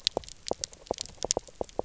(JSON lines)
{"label": "biophony, knock", "recorder": "SoundTrap 300"}